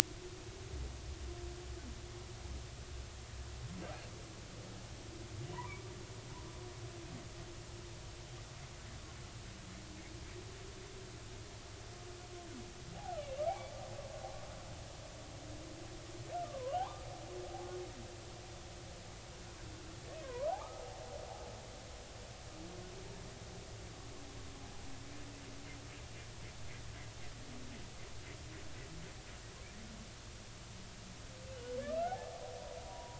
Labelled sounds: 5.5	5.9	humpback whale, 0.86 to 1.2 kHz
12.9	13.7	humpback whale, 0.80 to 2.4 kHz
16.4	17.0	humpback whale, 0.80 to 1.3 kHz
20.2	20.6	humpback whale, 0.90 to 1.3 kHz
31.8	33.1	humpback whale, 0.80 to 1.5 kHz

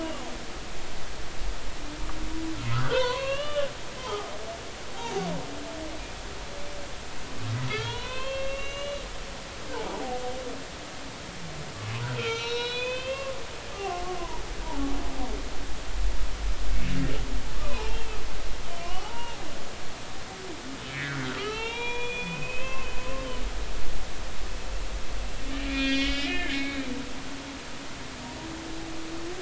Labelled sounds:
2.7	3.7	humpback whale, 0.90 to 4.6 kHz
4.0	4.3	humpback whale, 0.80 to 1.1 kHz
7.7	9.0	humpback whale, 0.90 to 6.3 kHz
9.9	10.2	humpback whale, 0.80 to 1.0 kHz
12.2	14.0	humpback whale, 0.90 to 6.2 kHz
17.5	18.2	humpback whale, 0.80 to 2.8 kHz
18.8	19.4	humpback whale, 0.80 to 3.0 kHz
20.9	23.3	humpback whale, 0.83 to 4.2 kHz
25.7	26.8	humpback whale, 1.6 to 5.8 kHz

